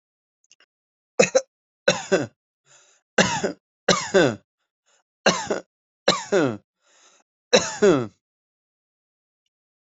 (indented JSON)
{
  "expert_labels": [
    {
      "quality": "good",
      "cough_type": "dry",
      "dyspnea": false,
      "wheezing": false,
      "stridor": false,
      "choking": false,
      "congestion": false,
      "nothing": true,
      "diagnosis": "upper respiratory tract infection",
      "severity": "mild"
    }
  ],
  "age": 23,
  "gender": "male",
  "respiratory_condition": false,
  "fever_muscle_pain": false,
  "status": "healthy"
}